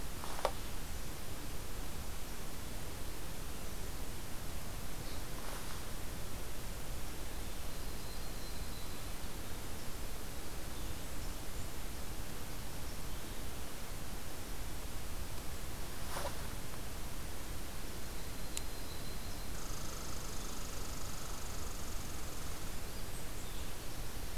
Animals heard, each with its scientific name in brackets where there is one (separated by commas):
Yellow-rumped Warbler (Setophaga coronata), Red Squirrel (Tamiasciurus hudsonicus)